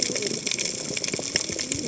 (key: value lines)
label: biophony, cascading saw
recorder: HydroMoth